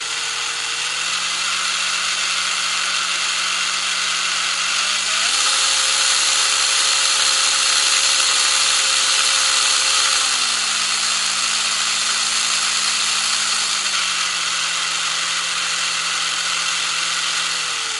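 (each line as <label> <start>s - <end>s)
An electric drill rotating at normal speed. 0.0s - 4.6s
An electric drill accelerating. 4.6s - 5.2s
An electric drill rotates at high speed. 5.2s - 10.2s
An electric drill rotating at normal speed. 10.2s - 13.8s
An electric drill rotating at a slow speed. 13.8s - 18.0s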